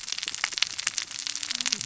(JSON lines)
{"label": "biophony, cascading saw", "recorder": "SoundTrap 600 or HydroMoth"}